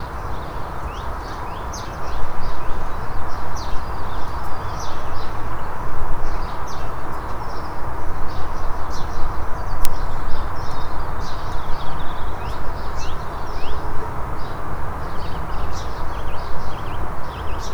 Is the person outside?
yes